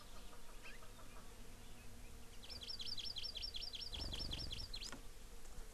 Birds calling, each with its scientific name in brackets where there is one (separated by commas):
Hawaii Amakihi (Chlorodrepanis virens), Chukar (Alectoris chukar)